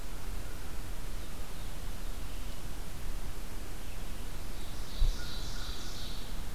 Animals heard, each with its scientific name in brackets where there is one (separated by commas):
American Crow (Corvus brachyrhynchos), Ovenbird (Seiurus aurocapilla)